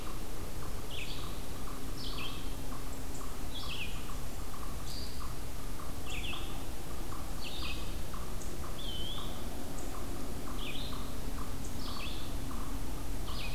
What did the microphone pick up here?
Red-eyed Vireo, unknown mammal, Eastern Wood-Pewee